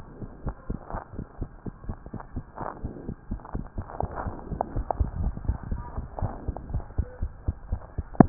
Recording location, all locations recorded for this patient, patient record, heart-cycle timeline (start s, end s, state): tricuspid valve (TV)
aortic valve (AV)+pulmonary valve (PV)+tricuspid valve (TV)+mitral valve (MV)
#Age: Child
#Sex: Female
#Height: 90.0 cm
#Weight: 12.4 kg
#Pregnancy status: False
#Murmur: Absent
#Murmur locations: nan
#Most audible location: nan
#Systolic murmur timing: nan
#Systolic murmur shape: nan
#Systolic murmur grading: nan
#Systolic murmur pitch: nan
#Systolic murmur quality: nan
#Diastolic murmur timing: nan
#Diastolic murmur shape: nan
#Diastolic murmur grading: nan
#Diastolic murmur pitch: nan
#Diastolic murmur quality: nan
#Outcome: Normal
#Campaign: 2015 screening campaign
0.00	4.74	unannotated
4.74	4.86	S1
4.86	4.98	systole
4.98	5.10	S2
5.10	5.21	diastole
5.21	5.32	S1
5.32	5.46	systole
5.46	5.56	S2
5.56	5.68	diastole
5.68	5.79	S1
5.79	5.95	systole
5.95	6.04	S2
6.04	6.21	diastole
6.21	6.32	S1
6.32	6.47	systole
6.47	6.56	S2
6.56	6.72	diastole
6.72	6.83	S1
6.83	6.96	systole
6.96	7.08	S2
7.08	7.20	diastole
7.20	7.32	S1
7.32	7.46	systole
7.46	7.56	S2
7.56	7.70	diastole
7.70	7.80	S1
7.80	7.96	systole
7.96	8.06	S2
8.06	8.19	diastole
8.19	8.29	S1